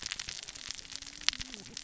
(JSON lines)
{"label": "biophony, cascading saw", "recorder": "SoundTrap 600 or HydroMoth"}